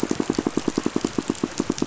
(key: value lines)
label: biophony, pulse
recorder: SoundTrap 500